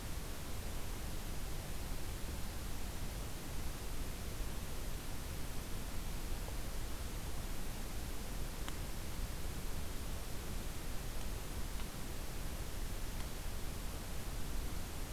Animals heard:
forest ambience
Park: Acadia National Park